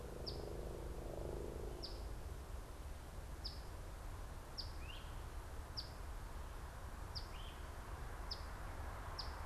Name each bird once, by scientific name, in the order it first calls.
Sayornis phoebe, Myiarchus crinitus